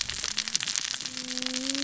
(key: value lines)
label: biophony, cascading saw
recorder: SoundTrap 600 or HydroMoth